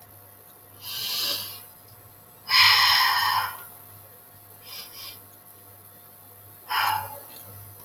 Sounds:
Sigh